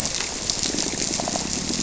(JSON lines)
{"label": "biophony", "recorder": "SoundTrap 300"}